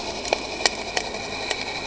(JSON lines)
{"label": "anthrophony, boat engine", "recorder": "HydroMoth"}